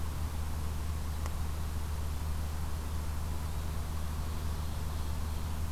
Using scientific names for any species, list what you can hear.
Seiurus aurocapilla